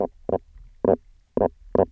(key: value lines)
label: biophony, knock croak
recorder: SoundTrap 300